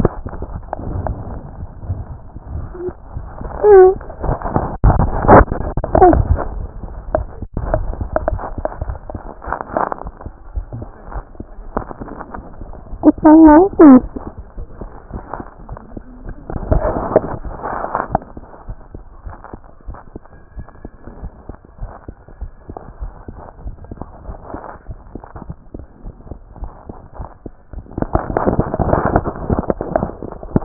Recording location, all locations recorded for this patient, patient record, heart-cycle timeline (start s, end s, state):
aortic valve (AV)
aortic valve (AV)+pulmonary valve (PV)+tricuspid valve (TV)+mitral valve (MV)
#Age: Child
#Sex: Female
#Height: 121.0 cm
#Weight: 26.8 kg
#Pregnancy status: False
#Murmur: Absent
#Murmur locations: nan
#Most audible location: nan
#Systolic murmur timing: nan
#Systolic murmur shape: nan
#Systolic murmur grading: nan
#Systolic murmur pitch: nan
#Systolic murmur quality: nan
#Diastolic murmur timing: nan
#Diastolic murmur shape: nan
#Diastolic murmur grading: nan
#Diastolic murmur pitch: nan
#Diastolic murmur quality: nan
#Outcome: Abnormal
#Campaign: 2014 screening campaign
0.00	21.63	unannotated
21.63	21.80	diastole
21.80	21.90	S1
21.90	22.08	systole
22.08	22.16	S2
22.16	22.40	diastole
22.40	22.50	S1
22.50	22.68	systole
22.68	22.78	S2
22.78	23.00	diastole
23.00	23.12	S1
23.12	23.30	systole
23.30	23.40	S2
23.40	23.64	diastole
23.64	23.74	S1
23.74	23.92	systole
23.92	24.04	S2
24.04	24.26	diastole
24.26	24.36	S1
24.36	24.54	systole
24.54	24.66	S2
24.66	24.90	diastole
24.90	24.98	S1
24.98	25.14	systole
25.14	25.22	S2
25.22	25.46	diastole
25.46	25.54	S1
25.54	25.74	systole
25.74	25.84	S2
25.84	26.06	diastole
26.06	26.14	S1
26.14	26.30	systole
26.30	26.40	S2
26.40	26.60	diastole
26.60	26.70	S1
26.70	26.88	systole
26.88	26.98	S2
26.98	27.18	diastole
27.18	27.28	S1
27.28	27.44	systole
27.44	27.54	S2
27.54	27.76	diastole
27.76	30.64	unannotated